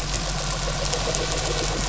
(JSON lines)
{"label": "anthrophony, boat engine", "recorder": "SoundTrap 500"}